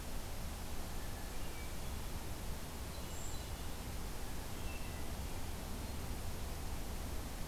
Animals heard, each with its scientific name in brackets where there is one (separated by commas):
Blue Jay (Cyanocitta cristata), Hermit Thrush (Catharus guttatus), Brown Creeper (Certhia americana)